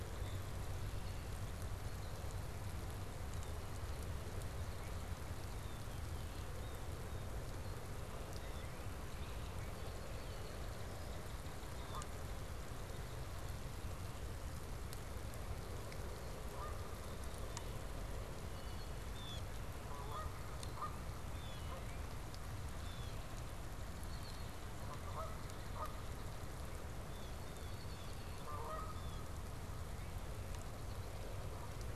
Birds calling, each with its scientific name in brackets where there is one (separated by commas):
Canada Goose (Branta canadensis), Northern Cardinal (Cardinalis cardinalis), Red-winged Blackbird (Agelaius phoeniceus), Blue Jay (Cyanocitta cristata)